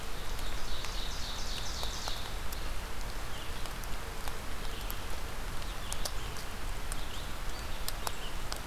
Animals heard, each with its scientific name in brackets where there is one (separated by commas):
Ovenbird (Seiurus aurocapilla), Red-eyed Vireo (Vireo olivaceus)